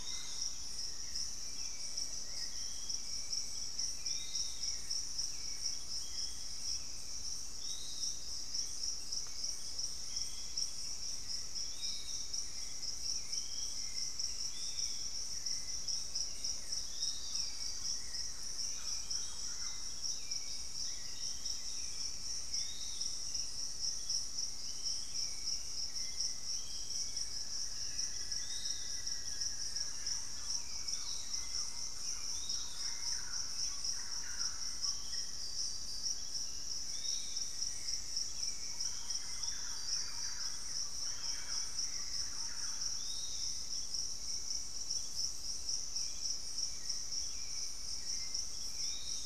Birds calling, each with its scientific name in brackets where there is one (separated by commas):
Fasciated Antshrike (Cymbilaimus lineatus), Piratic Flycatcher (Legatus leucophaius), Thrush-like Wren (Campylorhynchus turdinus), Buff-throated Woodcreeper (Xiphorhynchus guttatus), Hauxwell's Thrush (Turdus hauxwelli), Black-faced Antthrush (Formicarius analis)